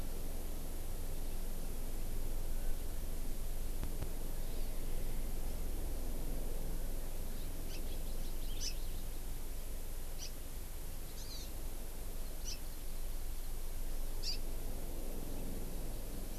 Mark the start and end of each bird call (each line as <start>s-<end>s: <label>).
8.6s-8.8s: House Finch (Haemorhous mexicanus)
10.2s-10.3s: House Finch (Haemorhous mexicanus)
11.2s-11.5s: Hawaii Amakihi (Chlorodrepanis virens)
12.4s-12.6s: Hawaii Amakihi (Chlorodrepanis virens)
14.2s-14.4s: Hawaii Amakihi (Chlorodrepanis virens)